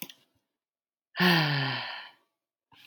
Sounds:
Sigh